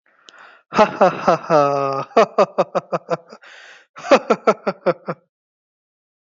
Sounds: Laughter